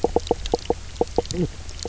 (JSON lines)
{"label": "biophony, knock croak", "recorder": "SoundTrap 300"}